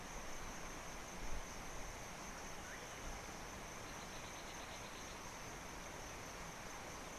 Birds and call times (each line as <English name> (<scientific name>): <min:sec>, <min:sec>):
African Bare-eyed Thrush (Turdus tephronotus): 0:04.6